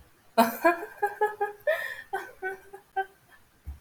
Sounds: Laughter